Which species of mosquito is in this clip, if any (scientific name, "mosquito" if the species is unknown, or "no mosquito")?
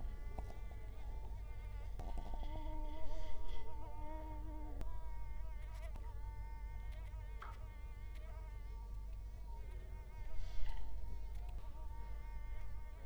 Culex quinquefasciatus